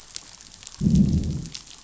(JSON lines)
{"label": "biophony, growl", "recorder": "SoundTrap 500"}